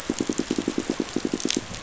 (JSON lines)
{"label": "biophony, rattle response", "recorder": "SoundTrap 500"}
{"label": "biophony, pulse", "recorder": "SoundTrap 500"}